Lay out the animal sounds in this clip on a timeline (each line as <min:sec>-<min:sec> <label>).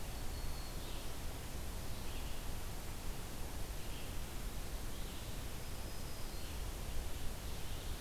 0:00.0-0:01.2 Black-throated Green Warbler (Setophaga virens)
0:00.0-0:08.0 Red-eyed Vireo (Vireo olivaceus)
0:05.5-0:06.7 Black-throated Green Warbler (Setophaga virens)